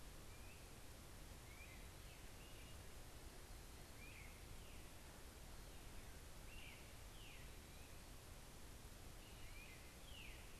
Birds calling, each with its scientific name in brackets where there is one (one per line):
Veery (Catharus fuscescens)
Great Crested Flycatcher (Myiarchus crinitus)